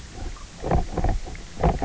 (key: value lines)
label: biophony, knock croak
recorder: SoundTrap 300